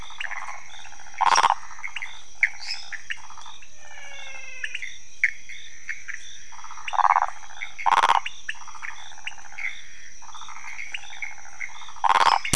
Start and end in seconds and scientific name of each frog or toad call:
0.0	4.5	Phyllomedusa sauvagii
0.0	12.0	Leptodactylus podicipinus
0.0	12.0	Pithecopus azureus
2.6	2.9	Dendropsophus minutus
3.7	4.9	Physalaemus albonotatus
6.5	12.5	Phyllomedusa sauvagii
12.2	12.4	Dendropsophus minutus